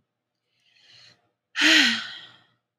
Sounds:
Sigh